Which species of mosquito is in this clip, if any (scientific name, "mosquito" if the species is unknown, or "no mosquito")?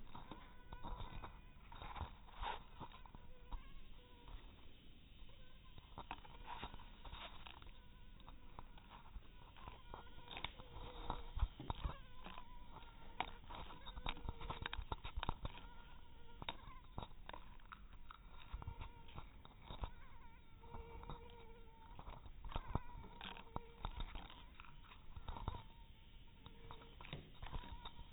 mosquito